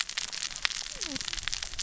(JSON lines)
{"label": "biophony, cascading saw", "recorder": "SoundTrap 600 or HydroMoth"}